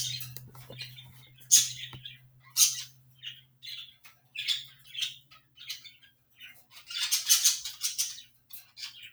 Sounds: Cough